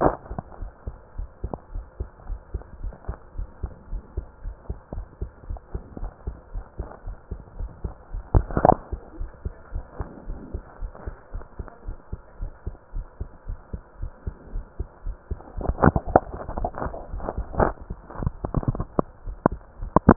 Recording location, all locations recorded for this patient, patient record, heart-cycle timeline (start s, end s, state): pulmonary valve (PV)
aortic valve (AV)+pulmonary valve (PV)+tricuspid valve (TV)+mitral valve (MV)
#Age: Child
#Sex: Male
#Height: 138.0 cm
#Weight: 37.4 kg
#Pregnancy status: False
#Murmur: Absent
#Murmur locations: nan
#Most audible location: nan
#Systolic murmur timing: nan
#Systolic murmur shape: nan
#Systolic murmur grading: nan
#Systolic murmur pitch: nan
#Systolic murmur quality: nan
#Diastolic murmur timing: nan
#Diastolic murmur shape: nan
#Diastolic murmur grading: nan
#Diastolic murmur pitch: nan
#Diastolic murmur quality: nan
#Outcome: Normal
#Campaign: 2015 screening campaign
0.00	1.15	unannotated
1.15	1.28	S1
1.28	1.40	systole
1.40	1.52	S2
1.52	1.72	diastole
1.72	1.86	S1
1.86	2.00	systole
2.00	2.10	S2
2.10	2.28	diastole
2.28	2.40	S1
2.40	2.52	systole
2.52	2.62	S2
2.62	2.80	diastole
2.80	2.94	S1
2.94	3.06	systole
3.06	3.16	S2
3.16	3.36	diastole
3.36	3.48	S1
3.48	3.60	systole
3.60	3.74	S2
3.74	3.90	diastole
3.90	4.02	S1
4.02	4.14	systole
4.14	4.28	S2
4.28	4.44	diastole
4.44	4.56	S1
4.56	4.66	systole
4.66	4.78	S2
4.78	4.96	diastole
4.96	5.06	S1
5.06	5.18	systole
5.18	5.30	S2
5.30	5.48	diastole
5.48	5.60	S1
5.60	5.72	systole
5.72	5.82	S2
5.82	6.00	diastole
6.00	6.12	S1
6.12	6.26	systole
6.26	6.38	S2
6.38	6.54	diastole
6.54	6.64	S1
6.64	6.78	systole
6.78	6.88	S2
6.88	7.06	diastole
7.06	7.18	S1
7.18	7.32	systole
7.32	7.42	S2
7.42	7.58	diastole
7.58	7.70	S1
7.70	7.82	systole
7.82	7.96	S2
7.96	8.12	diastole
8.12	8.24	S1
8.24	8.88	unannotated
8.88	9.00	S2
9.00	9.18	diastole
9.18	9.32	S1
9.32	9.43	systole
9.43	9.54	S2
9.54	9.74	diastole
9.74	9.86	S1
9.86	9.98	systole
9.98	10.08	S2
10.08	10.26	diastole
10.26	10.40	S1
10.40	10.52	systole
10.52	10.62	S2
10.62	10.80	diastole
10.80	10.92	S1
10.92	11.04	systole
11.04	11.16	S2
11.16	11.32	diastole
11.32	11.46	S1
11.46	11.58	systole
11.58	11.68	S2
11.68	11.86	diastole
11.86	11.96	S1
11.96	12.11	systole
12.11	12.20	S2
12.20	12.40	diastole
12.40	12.52	S1
12.52	12.66	systole
12.66	12.76	S2
12.76	12.94	diastole
12.94	13.06	S1
13.06	13.20	systole
13.20	13.30	S2
13.30	13.48	diastole
13.48	13.60	S1
13.60	13.72	systole
13.72	13.82	S2
13.82	14.00	diastole
14.00	14.12	S1
14.12	14.26	systole
14.26	14.36	S2
14.36	14.54	diastole
14.54	14.66	S1
14.66	14.78	systole
14.78	14.88	S2
14.88	15.04	diastole
15.04	15.16	S1
15.16	20.16	unannotated